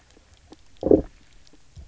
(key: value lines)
label: biophony, low growl
recorder: SoundTrap 300